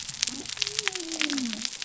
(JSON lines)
{"label": "biophony", "recorder": "SoundTrap 300"}